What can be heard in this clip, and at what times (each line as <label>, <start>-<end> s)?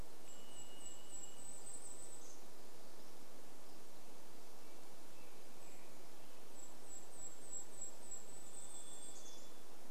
Varied Thrush song, 0-2 s
Golden-crowned Kinglet song, 0-4 s
American Robin song, 4-6 s
Golden-crowned Kinglet call, 4-6 s
Golden-crowned Kinglet song, 6-10 s
Varied Thrush song, 8-10 s